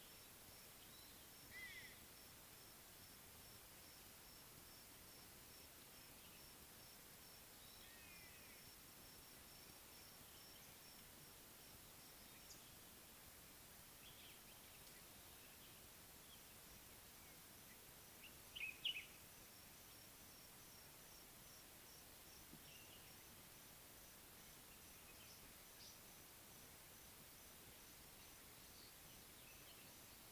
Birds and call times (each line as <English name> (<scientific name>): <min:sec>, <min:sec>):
White-bellied Go-away-bird (Corythaixoides leucogaster): 0:01.5, 0:08.1
Common Bulbul (Pycnonotus barbatus): 0:18.6